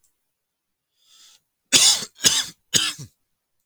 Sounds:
Cough